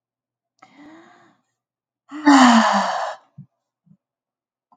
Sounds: Sigh